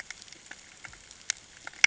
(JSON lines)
{"label": "ambient", "recorder": "HydroMoth"}